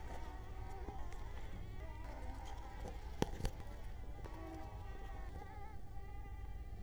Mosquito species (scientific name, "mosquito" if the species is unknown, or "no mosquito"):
Culex quinquefasciatus